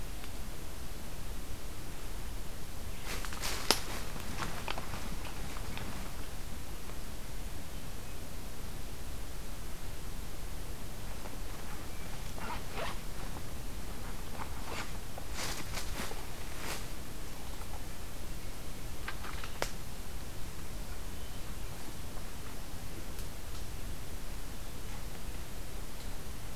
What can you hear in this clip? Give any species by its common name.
forest ambience